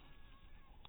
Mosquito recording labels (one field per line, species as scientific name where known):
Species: mosquito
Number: one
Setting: cup